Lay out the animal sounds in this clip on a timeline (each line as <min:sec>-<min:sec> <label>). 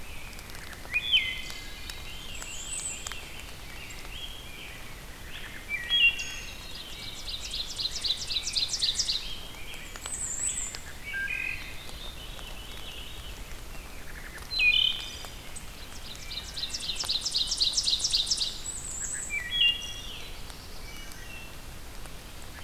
0:00.0-0:11.1 Rose-breasted Grosbeak (Pheucticus ludovicianus)
0:00.5-0:02.0 Wood Thrush (Hylocichla mustelina)
0:01.7-0:03.5 Veery (Catharus fuscescens)
0:02.1-0:03.2 Bay-breasted Warbler (Setophaga castanea)
0:05.4-0:06.6 Wood Thrush (Hylocichla mustelina)
0:06.0-0:09.4 Ovenbird (Seiurus aurocapilla)
0:09.6-0:10.9 Bay-breasted Warbler (Setophaga castanea)
0:10.8-0:11.9 Wood Thrush (Hylocichla mustelina)
0:11.5-0:14.3 Veery (Catharus fuscescens)
0:13.7-0:15.4 Wood Thrush (Hylocichla mustelina)
0:15.6-0:18.9 Ovenbird (Seiurus aurocapilla)
0:18.4-0:19.5 Bay-breasted Warbler (Setophaga castanea)
0:18.9-0:20.2 Wood Thrush (Hylocichla mustelina)
0:19.9-0:21.5 Black-throated Blue Warbler (Setophaga caerulescens)
0:20.8-0:21.6 Wood Thrush (Hylocichla mustelina)